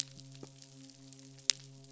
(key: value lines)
label: biophony, midshipman
recorder: SoundTrap 500